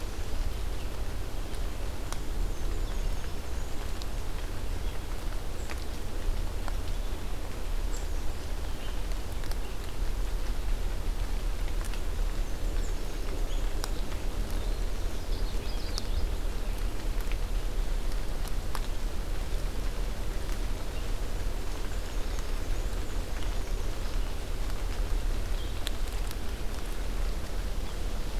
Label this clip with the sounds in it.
Black-and-white Warbler, Common Yellowthroat, American Redstart